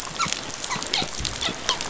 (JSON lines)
{"label": "biophony, dolphin", "recorder": "SoundTrap 500"}